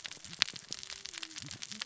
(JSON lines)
{"label": "biophony, cascading saw", "recorder": "SoundTrap 600 or HydroMoth"}